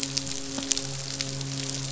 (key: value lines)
label: biophony, midshipman
recorder: SoundTrap 500